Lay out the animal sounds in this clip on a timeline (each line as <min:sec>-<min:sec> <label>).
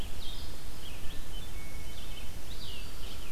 0:00.1-0:03.3 Red-eyed Vireo (Vireo olivaceus)
0:01.0-0:02.7 Hermit Thrush (Catharus guttatus)